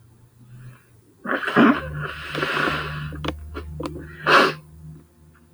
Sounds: Sneeze